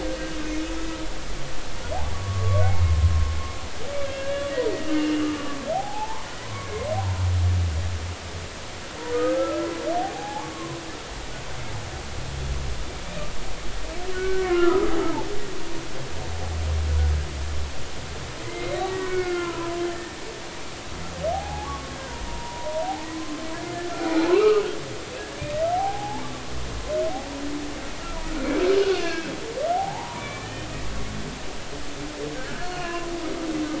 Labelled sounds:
2.1	3.1	humpback whale, 0.99 to 2.3 kHz
4.0	6.7	humpback whale, 0.80 to 2.9 kHz
9.1	9.7	humpback whale, 1.2 to 1.7 kHz
10.0	10.8	humpback whale, 0.80 to 1.2 kHz
14.1	14.9	humpback whale, 1.0 to 1.6 kHz
18.4	20.2	humpback whale, 0.93 to 2.3 kHz
21.3	21.9	humpback whale, 0.80 to 1.2 kHz
22.3	23.3	humpback whale, 0.90 to 1.1 kHz
24.3	24.8	humpback whale, 0.96 to 3.0 kHz
25.7	26.2	humpback whale, 0.80 to 0.99 kHz
28.9	30.7	humpback whale, 0.80 to 2.9 kHz
32.3	33.1	humpback whale, 0.96 to 4.4 kHz

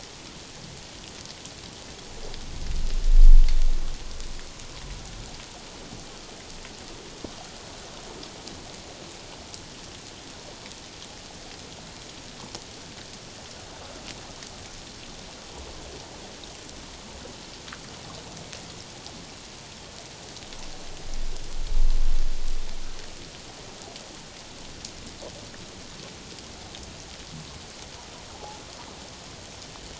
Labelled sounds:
28.3	28.6	humpback whale, 0.78 to 0.97 kHz

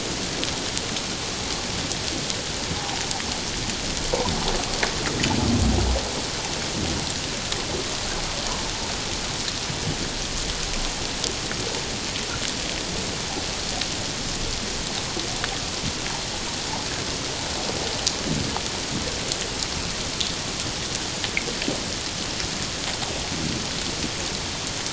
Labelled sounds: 2.8	3.0	humpback whale, 0.78 to 1.0 kHz

